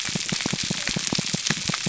{"label": "biophony, pulse", "recorder": "SoundTrap 300"}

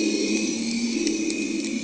{"label": "anthrophony, boat engine", "recorder": "HydroMoth"}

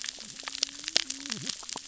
{"label": "biophony, cascading saw", "recorder": "SoundTrap 600 or HydroMoth"}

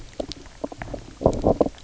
{"label": "biophony, knock croak", "recorder": "SoundTrap 300"}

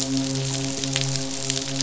{"label": "biophony, midshipman", "recorder": "SoundTrap 500"}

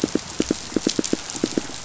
{"label": "biophony, pulse", "recorder": "SoundTrap 500"}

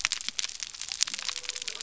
{"label": "biophony", "recorder": "SoundTrap 300"}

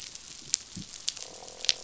{"label": "biophony, croak", "recorder": "SoundTrap 500"}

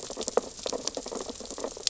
{"label": "biophony, sea urchins (Echinidae)", "recorder": "SoundTrap 600 or HydroMoth"}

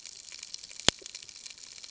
{"label": "ambient", "recorder": "HydroMoth"}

